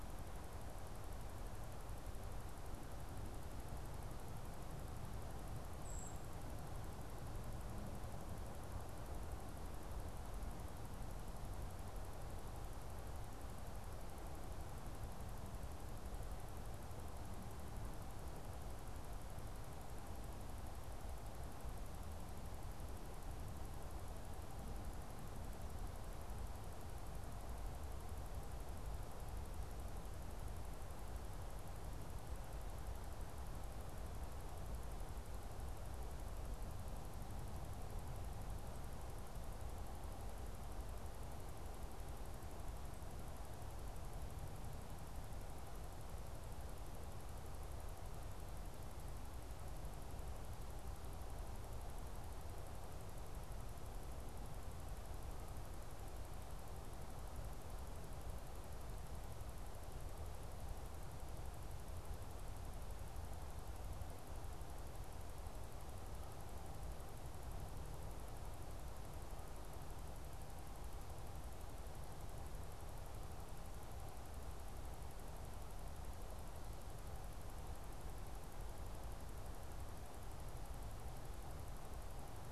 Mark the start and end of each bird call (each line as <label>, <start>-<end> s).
Brown Creeper (Certhia americana), 5.7-6.3 s